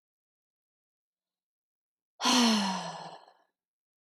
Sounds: Sigh